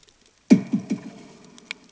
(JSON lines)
{"label": "anthrophony, bomb", "recorder": "HydroMoth"}